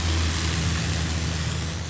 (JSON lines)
{"label": "anthrophony, boat engine", "recorder": "SoundTrap 500"}